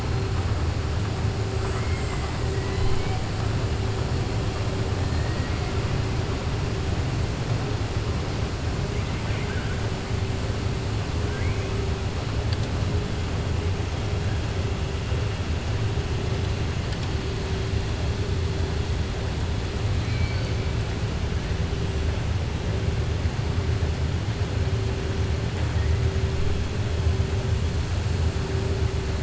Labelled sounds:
1.6	2.3	killer whale, southern resident, 0.99 to 3.1 kHz
5.1	5.6	killer whale, southern resident, 1.4 to 2.2 kHz
19.9	20.5	killer whale, southern resident, 1.5 to 4.8 kHz

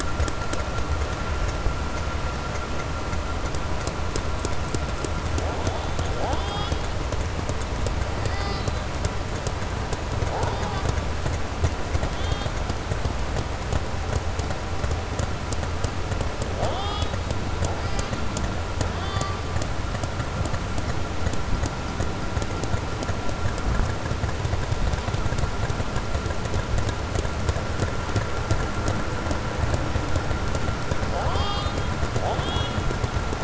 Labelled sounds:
12.0	12.5	killer whale, southern resident, 1.7 to 7.0 kHz
16.5	17.2	killer whale, southern resident, 0.42 to 7.8 kHz
31.0	31.8	killer whale, southern resident, 0.54 to 5.3 kHz
32.3	32.8	killer whale, southern resident, 2.9 to 4.2 kHz

